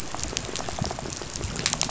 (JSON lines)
{"label": "biophony, rattle", "recorder": "SoundTrap 500"}